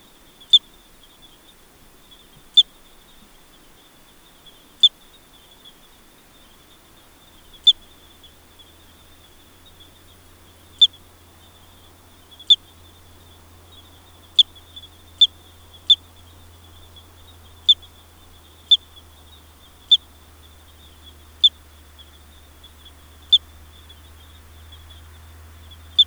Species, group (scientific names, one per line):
Eugryllodes pipiens
Orthoptera